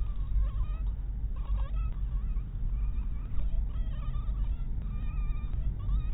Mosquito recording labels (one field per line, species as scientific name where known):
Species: mosquito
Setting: cup